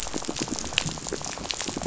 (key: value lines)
label: biophony, rattle
recorder: SoundTrap 500